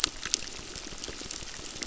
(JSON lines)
{"label": "biophony, crackle", "recorder": "SoundTrap 600"}